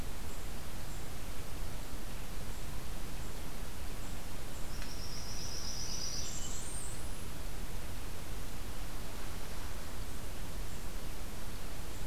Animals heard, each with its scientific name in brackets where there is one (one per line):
Blackburnian Warbler (Setophaga fusca)
Hermit Thrush (Catharus guttatus)